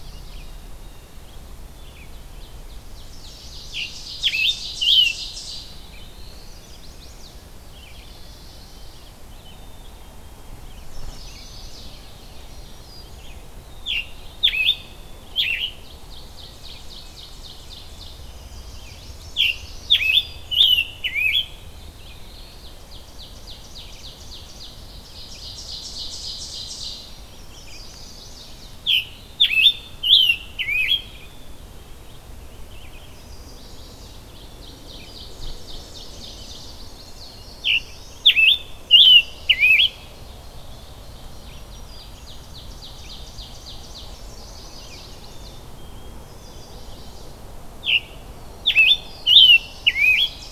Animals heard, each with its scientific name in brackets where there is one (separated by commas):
Black-capped Chickadee (Poecile atricapillus), Chestnut-sided Warbler (Setophaga pensylvanica), Blue Jay (Cyanocitta cristata), Scarlet Tanager (Piranga olivacea), Black-throated Blue Warbler (Setophaga caerulescens), Ovenbird (Seiurus aurocapilla), Mourning Warbler (Geothlypis philadelphia), Black-throated Green Warbler (Setophaga virens), Red-eyed Vireo (Vireo olivaceus)